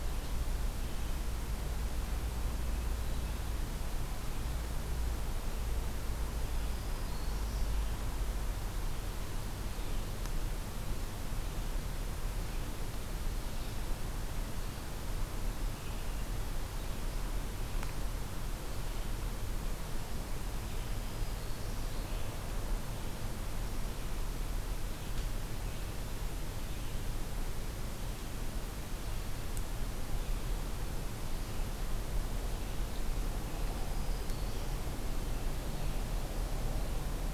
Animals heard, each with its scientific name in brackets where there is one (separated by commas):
Red-eyed Vireo (Vireo olivaceus), Black-throated Green Warbler (Setophaga virens)